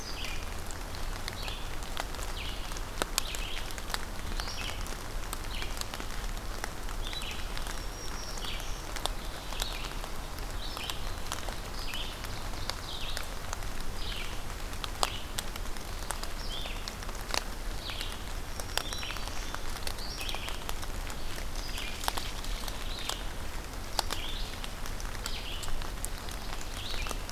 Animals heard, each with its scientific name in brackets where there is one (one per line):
Red-eyed Vireo (Vireo olivaceus)
Black-throated Green Warbler (Setophaga virens)